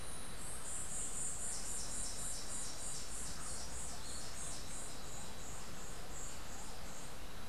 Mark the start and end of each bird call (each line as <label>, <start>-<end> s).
White-eared Ground-Sparrow (Melozone leucotis), 0.0-7.4 s